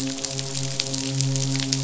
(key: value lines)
label: biophony, midshipman
recorder: SoundTrap 500